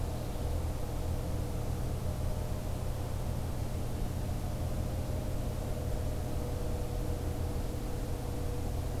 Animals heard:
forest ambience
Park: Acadia National Park